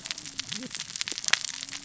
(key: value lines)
label: biophony, cascading saw
recorder: SoundTrap 600 or HydroMoth